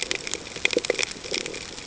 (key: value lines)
label: ambient
recorder: HydroMoth